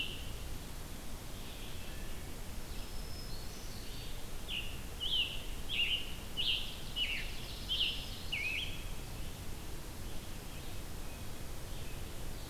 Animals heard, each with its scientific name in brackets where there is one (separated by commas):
Red-eyed Vireo (Vireo olivaceus), Black-throated Green Warbler (Setophaga virens), Ovenbird (Seiurus aurocapilla), Scarlet Tanager (Piranga olivacea)